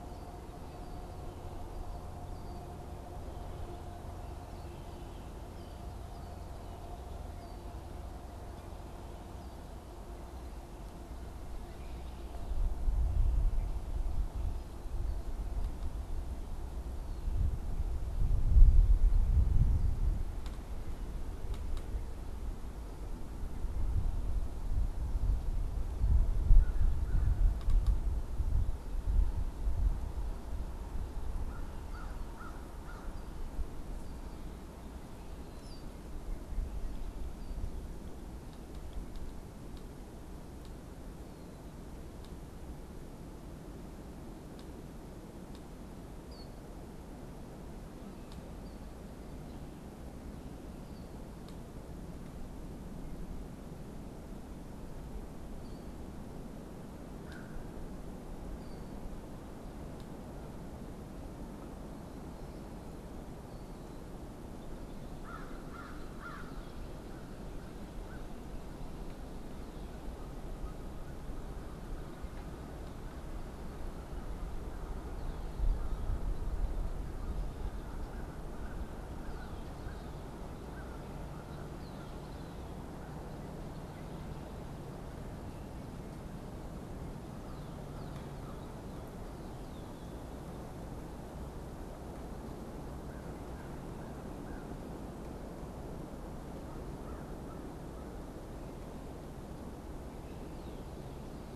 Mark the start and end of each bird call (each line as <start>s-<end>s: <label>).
0.0s-7.9s: Red-winged Blackbird (Agelaius phoeniceus)
26.1s-28.0s: American Crow (Corvus brachyrhynchos)
31.3s-33.2s: American Crow (Corvus brachyrhynchos)
34.1s-37.9s: Red-winged Blackbird (Agelaius phoeniceus)
35.4s-35.9s: unidentified bird
46.1s-46.5s: Killdeer (Charadrius vociferus)
48.4s-48.9s: Killdeer (Charadrius vociferus)
55.4s-56.0s: Killdeer (Charadrius vociferus)
57.0s-57.7s: American Crow (Corvus brachyrhynchos)
58.5s-58.9s: Killdeer (Charadrius vociferus)
64.9s-68.4s: American Crow (Corvus brachyrhynchos)
77.0s-82.2s: American Crow (Corvus brachyrhynchos)
79.1s-83.9s: Red-winged Blackbird (Agelaius phoeniceus)
92.8s-94.7s: American Crow (Corvus brachyrhynchos)
96.5s-98.2s: American Crow (Corvus brachyrhynchos)